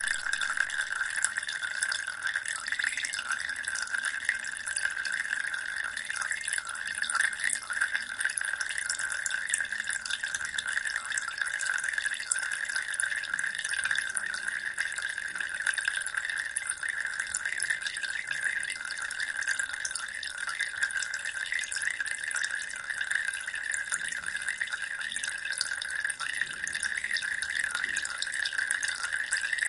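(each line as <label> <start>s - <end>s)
Water dripping loudly and continuously. 0.0s - 29.7s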